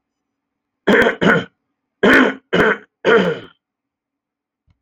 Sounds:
Cough